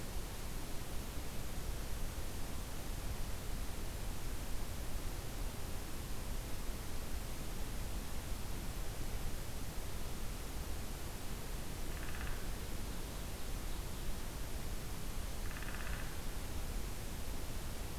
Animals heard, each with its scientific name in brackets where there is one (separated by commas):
Ovenbird (Seiurus aurocapilla), Downy Woodpecker (Dryobates pubescens)